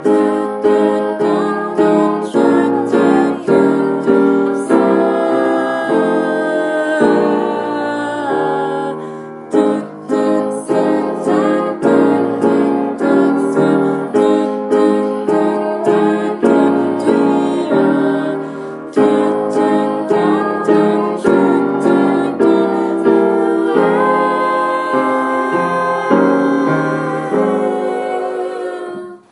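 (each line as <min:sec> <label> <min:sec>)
0:00.1 Vocal singing accompanied by piano with poor audio quality. 0:29.3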